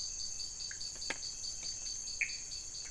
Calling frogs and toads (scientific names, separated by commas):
Dendropsophus nanus, Pithecopus azureus